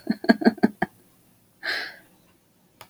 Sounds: Laughter